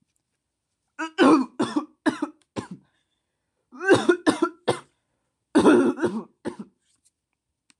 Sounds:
Cough